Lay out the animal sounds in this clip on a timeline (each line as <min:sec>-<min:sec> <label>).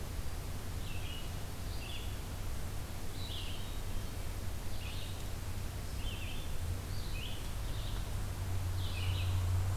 0:00.0-0:09.8 Red-eyed Vireo (Vireo olivaceus)
0:03.1-0:04.4 Hermit Thrush (Catharus guttatus)